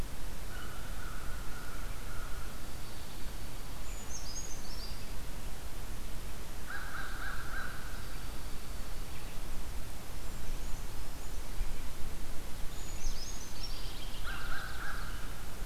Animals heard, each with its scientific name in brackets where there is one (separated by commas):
American Crow (Corvus brachyrhynchos), Common Yellowthroat (Geothlypis trichas), Dark-eyed Junco (Junco hyemalis), Purple Finch (Haemorhous purpureus), Brown Creeper (Certhia americana)